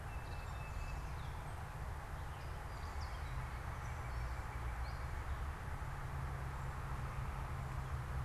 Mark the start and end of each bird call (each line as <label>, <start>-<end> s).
Tufted Titmouse (Baeolophus bicolor), 0.0-1.2 s
unidentified bird, 0.0-8.2 s
Northern Cardinal (Cardinalis cardinalis), 2.6-5.4 s